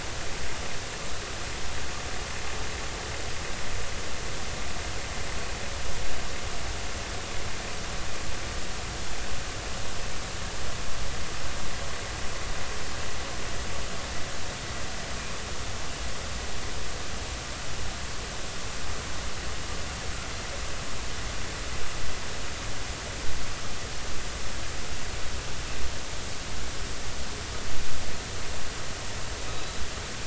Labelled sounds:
29.4	29.8	killer whale, offshore, 3.7 to 4.0 kHz

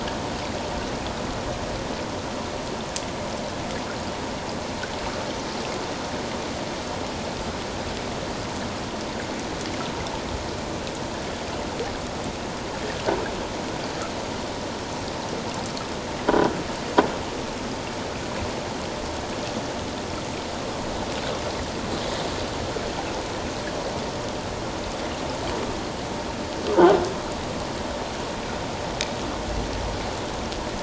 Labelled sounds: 26.7	27.0	croaking sound likely from a nearby submerged object, 0.78 to 1.6 kHz

